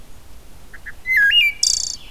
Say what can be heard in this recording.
Red-eyed Vireo, Wood Thrush